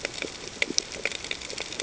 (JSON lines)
{"label": "ambient", "recorder": "HydroMoth"}